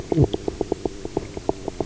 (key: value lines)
label: biophony, knock croak
recorder: SoundTrap 300